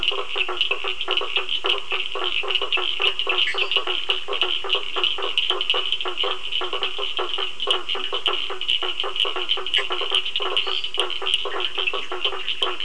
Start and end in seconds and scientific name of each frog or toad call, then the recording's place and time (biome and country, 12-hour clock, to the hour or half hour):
0.0	12.8	Boana faber
0.0	12.8	Sphaenorhynchus surdus
3.3	4.1	Dendropsophus minutus
6.7	8.2	Dendropsophus minutus
10.4	11.3	Dendropsophus minutus
11.8	12.3	Dendropsophus minutus
Atlantic Forest, Brazil, ~8pm